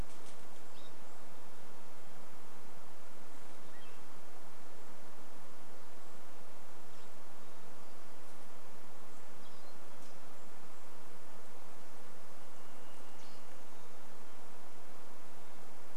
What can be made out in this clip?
unidentified sound, Hermit Thrush song, Golden-crowned Kinglet call, Varied Thrush song